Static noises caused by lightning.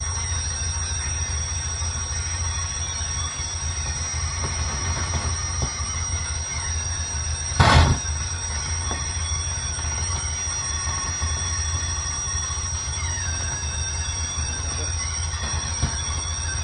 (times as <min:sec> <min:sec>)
0:07.5 0:08.1